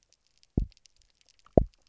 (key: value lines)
label: biophony, double pulse
recorder: SoundTrap 300